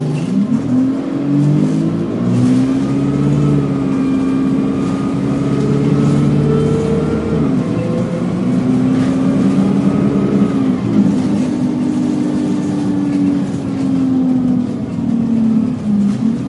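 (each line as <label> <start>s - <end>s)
An engine is accelerating nearby. 0.2s - 10.2s
Feet dragging. 1.3s - 3.2s
Feet dragging. 5.4s - 6.6s
A gear shifts nearby. 7.4s - 8.2s
A gear shifts nearby. 10.3s - 11.1s
An engine is slowing down. 11.1s - 16.5s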